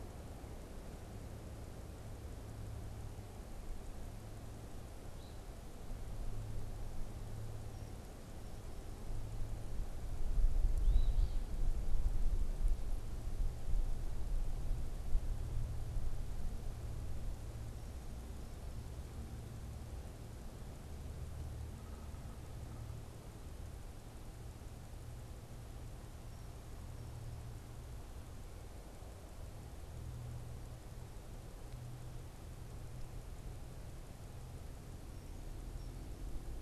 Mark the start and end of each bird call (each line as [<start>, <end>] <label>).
[5.03, 5.43] Eastern Phoebe (Sayornis phoebe)
[10.73, 11.53] Eastern Phoebe (Sayornis phoebe)
[21.63, 23.13] Yellow-bellied Sapsucker (Sphyrapicus varius)